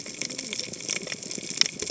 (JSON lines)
{"label": "biophony, cascading saw", "recorder": "HydroMoth"}